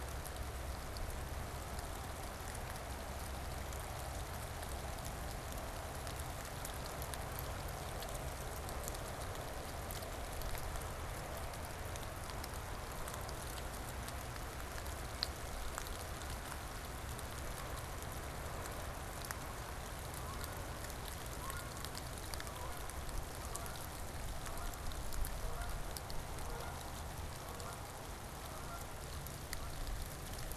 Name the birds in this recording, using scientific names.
Branta canadensis